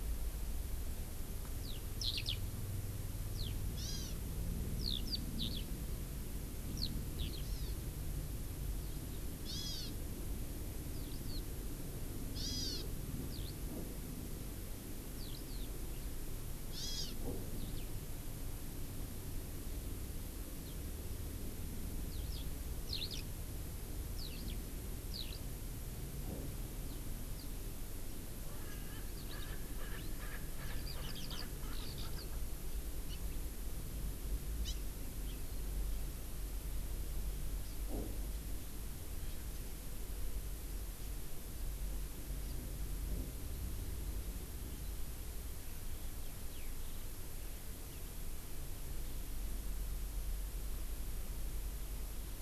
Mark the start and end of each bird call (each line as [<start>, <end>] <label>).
[1.61, 2.42] Eurasian Skylark (Alauda arvensis)
[3.31, 3.52] Eurasian Skylark (Alauda arvensis)
[3.71, 4.12] Hawaii Amakihi (Chlorodrepanis virens)
[4.82, 5.62] Eurasian Skylark (Alauda arvensis)
[6.71, 7.42] Eurasian Skylark (Alauda arvensis)
[7.51, 7.71] Hawaii Amakihi (Chlorodrepanis virens)
[9.41, 9.91] Hawaii Amakihi (Chlorodrepanis virens)
[10.91, 11.41] Eurasian Skylark (Alauda arvensis)
[12.31, 12.81] Hawaii Amakihi (Chlorodrepanis virens)
[13.31, 13.52] Eurasian Skylark (Alauda arvensis)
[15.12, 15.71] Eurasian Skylark (Alauda arvensis)
[16.71, 17.11] Hawaii Amakihi (Chlorodrepanis virens)
[17.52, 17.82] Eurasian Skylark (Alauda arvensis)
[22.11, 22.41] Eurasian Skylark (Alauda arvensis)
[22.82, 23.21] Eurasian Skylark (Alauda arvensis)
[24.11, 24.52] Eurasian Skylark (Alauda arvensis)
[25.11, 25.41] Eurasian Skylark (Alauda arvensis)
[27.32, 27.52] Eurasian Skylark (Alauda arvensis)
[28.52, 32.41] Erckel's Francolin (Pternistis erckelii)
[29.11, 29.52] Eurasian Skylark (Alauda arvensis)
[30.61, 30.71] Hawaii Amakihi (Chlorodrepanis virens)
[30.82, 31.41] Eurasian Skylark (Alauda arvensis)
[31.71, 32.12] Eurasian Skylark (Alauda arvensis)
[33.12, 33.22] Hawaii Amakihi (Chlorodrepanis virens)
[34.62, 34.81] Hawaii Amakihi (Chlorodrepanis virens)
[35.22, 35.41] Hawaii Amakihi (Chlorodrepanis virens)
[46.52, 46.72] Eurasian Skylark (Alauda arvensis)